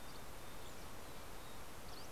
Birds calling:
Mountain Chickadee (Poecile gambeli)
Fox Sparrow (Passerella iliaca)
Dusky Flycatcher (Empidonax oberholseri)

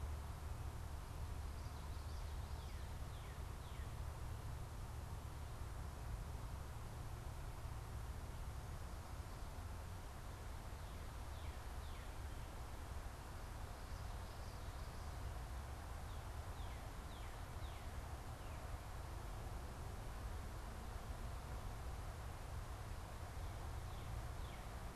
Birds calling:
Northern Cardinal (Cardinalis cardinalis)

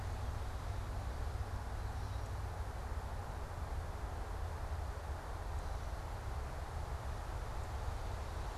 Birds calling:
Gray Catbird (Dumetella carolinensis)

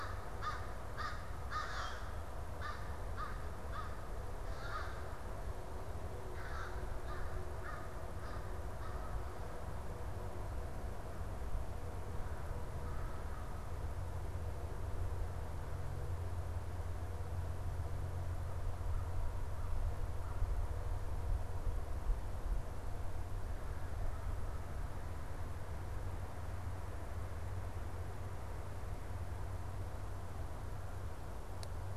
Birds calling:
American Crow (Corvus brachyrhynchos)

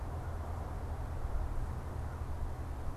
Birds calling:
American Crow (Corvus brachyrhynchos)

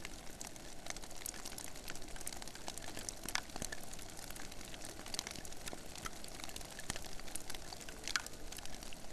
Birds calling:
Hawaiian Petrel (Pterodroma sandwichensis)

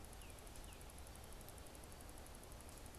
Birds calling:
Tufted Titmouse (Baeolophus bicolor)

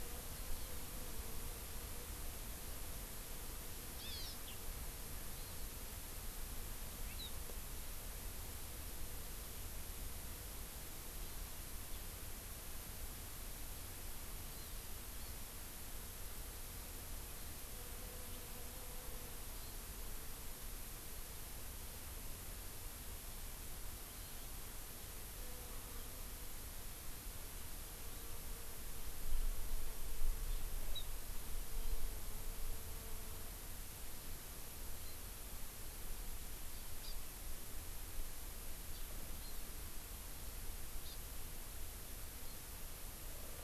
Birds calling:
Hawaii Amakihi (Chlorodrepanis virens)

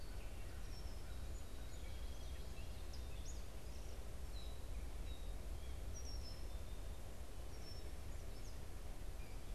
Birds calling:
Red-winged Blackbird (Agelaius phoeniceus)
Song Sparrow (Melospiza melodia)
Gray Catbird (Dumetella carolinensis)

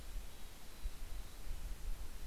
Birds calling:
Mountain Chickadee (Poecile gambeli)

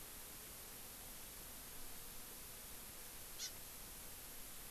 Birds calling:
Hawaii Amakihi (Chlorodrepanis virens)

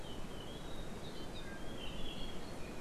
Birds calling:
Apapane (Himatione sanguinea)

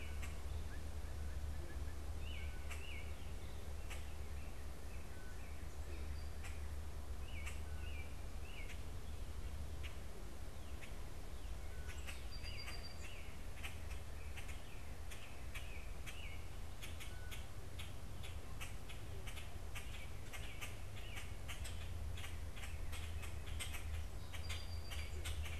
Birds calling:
Blue Jay (Cyanocitta cristata)
Song Sparrow (Melospiza melodia)
Common Grackle (Quiscalus quiscula)
American Robin (Turdus migratorius)

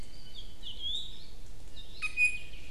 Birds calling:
Apapane (Himatione sanguinea)
Iiwi (Drepanis coccinea)

